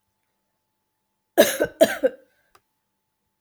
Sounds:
Cough